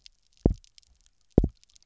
{"label": "biophony, double pulse", "recorder": "SoundTrap 300"}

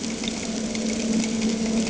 {"label": "anthrophony, boat engine", "recorder": "HydroMoth"}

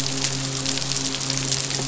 {"label": "biophony, midshipman", "recorder": "SoundTrap 500"}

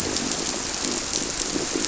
{"label": "biophony", "recorder": "SoundTrap 300"}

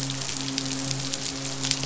{"label": "biophony, midshipman", "recorder": "SoundTrap 500"}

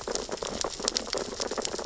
{"label": "biophony, sea urchins (Echinidae)", "recorder": "SoundTrap 600 or HydroMoth"}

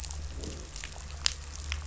{"label": "biophony, growl", "recorder": "SoundTrap 500"}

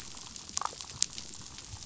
{"label": "biophony, damselfish", "recorder": "SoundTrap 500"}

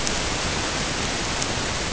{"label": "ambient", "recorder": "HydroMoth"}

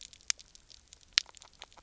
{"label": "biophony, grazing", "recorder": "SoundTrap 300"}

